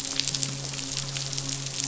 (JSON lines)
{"label": "biophony, midshipman", "recorder": "SoundTrap 500"}